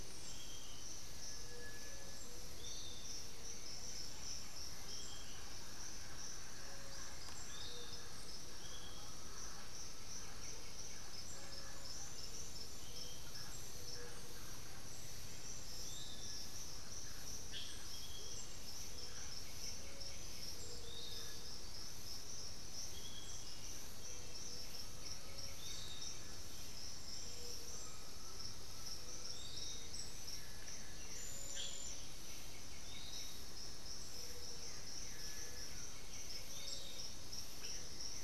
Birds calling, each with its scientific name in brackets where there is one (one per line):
Amazonian Motmot (Momotus momota)
Little Tinamou (Crypturellus soui)
Undulated Tinamou (Crypturellus undulatus)
Blue-gray Saltator (Saltator coerulescens)
unidentified bird
Piratic Flycatcher (Legatus leucophaius)
White-winged Becard (Pachyramphus polychopterus)